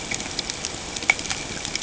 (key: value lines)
label: ambient
recorder: HydroMoth